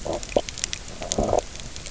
{"label": "biophony, low growl", "recorder": "SoundTrap 300"}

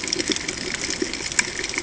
{"label": "ambient", "recorder": "HydroMoth"}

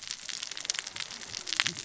{"label": "biophony, cascading saw", "recorder": "SoundTrap 600 or HydroMoth"}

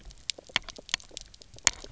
{"label": "biophony, knock croak", "recorder": "SoundTrap 300"}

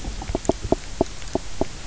{"label": "biophony, knock croak", "recorder": "SoundTrap 300"}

